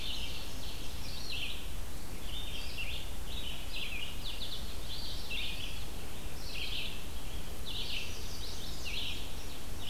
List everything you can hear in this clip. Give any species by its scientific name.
Seiurus aurocapilla, Vireo olivaceus, Setophaga pensylvanica